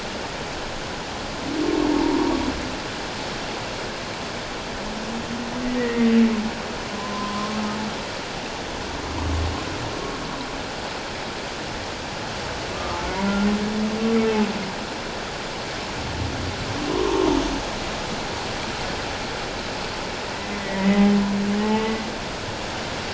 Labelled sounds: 1.9	2.3	humpback whale, 0.84 to 1.0 kHz
5.8	6.2	humpback whale, 1.8 to 2.2 kHz
6.9	7.6	humpback whale, 0.88 to 1.1 kHz
12.7	13.0	humpback whale, 1.1 to 1.3 kHz
16.9	17.3	humpback whale, 0.88 to 1.2 kHz
20.3	22.0	humpback whale, 0.81 to 2.3 kHz

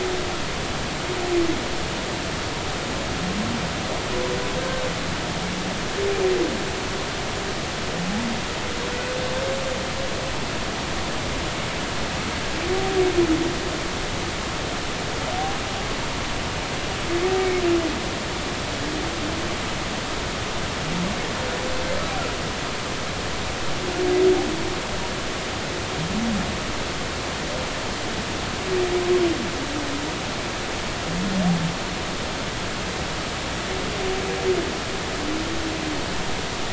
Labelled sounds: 4.6	4.8	humpback whale, 1.5 to 1.6 kHz
17.4	17.6	humpback whale, 2.1 to 2.3 kHz

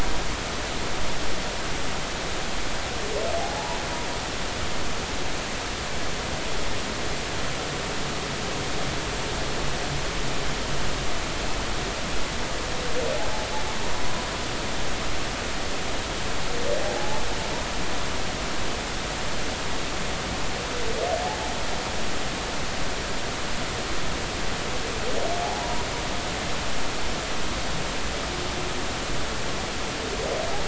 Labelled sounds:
3.4	3.8	humpback whale, 0.80 to 0.99 kHz
16.8	17.2	humpback whale, 0.80 to 0.93 kHz
25.6	25.8	humpback whale, 0.93 to 0.99 kHz

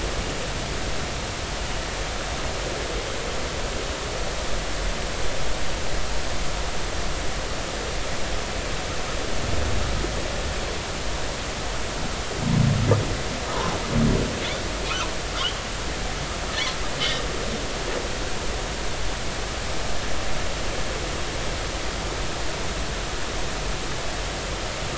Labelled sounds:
15.4	15.6	humpback whale, 2.8 to 3.4 kHz

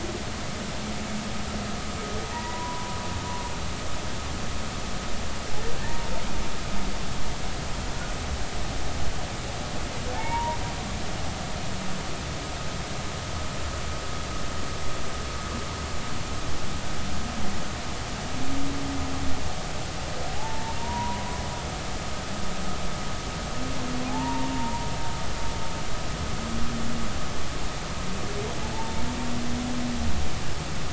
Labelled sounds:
2.3	3.0	humpback whale, 0.83 to 2.0 kHz
5.8	6.1	humpback whale, 0.86 to 0.96 kHz
10.1	10.6	humpback whale, 0.80 to 2.3 kHz
20.3	21.3	humpback whale, 0.80 to 1.0 kHz
24.1	24.9	humpback whale, 0.80 to 1.1 kHz
28.7	29.0	humpback whale, 0.83 to 0.96 kHz

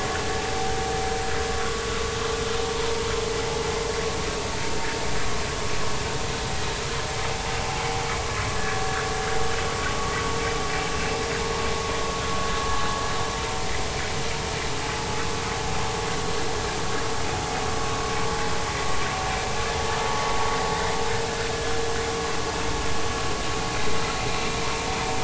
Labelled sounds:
2.6	3.0	vessel noise, 0.90 to 1.1 kHz

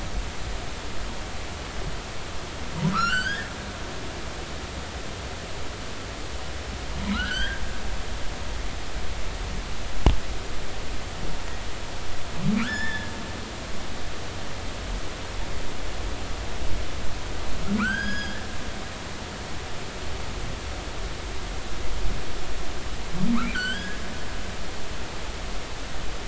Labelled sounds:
2.9	3.5	humpback whale, 1.1 to 5.7 kHz
7.1	7.6	humpback whale, 1.2 to 3.4 kHz
12.6	13.1	humpback whale, 1.2 to 5.4 kHz
17.8	18.4	humpback whale, 1.1 to 6.7 kHz
23.5	24.0	humpback whale, 1.3 to 4.7 kHz

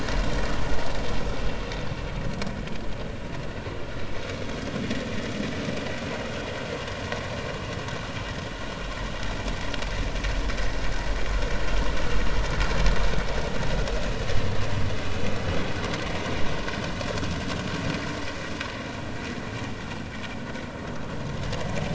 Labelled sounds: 4.3	4.6	vessel noise, 3.2 to 3.5 kHz

